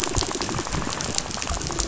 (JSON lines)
{"label": "biophony, rattle", "recorder": "SoundTrap 500"}